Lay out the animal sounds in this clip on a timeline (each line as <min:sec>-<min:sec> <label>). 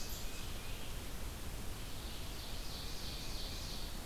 0:00.0-0:00.9 Tufted Titmouse (Baeolophus bicolor)
0:00.0-0:04.1 Red-eyed Vireo (Vireo olivaceus)
0:01.8-0:04.0 Ovenbird (Seiurus aurocapilla)
0:02.4-0:03.8 Tufted Titmouse (Baeolophus bicolor)